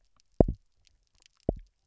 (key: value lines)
label: biophony, double pulse
recorder: SoundTrap 300